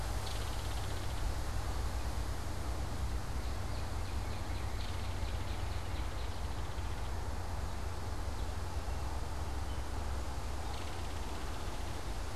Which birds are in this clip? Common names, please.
Belted Kingfisher, Northern Cardinal